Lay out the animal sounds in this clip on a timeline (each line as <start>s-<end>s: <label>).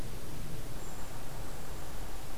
0.7s-1.2s: Brown Creeper (Certhia americana)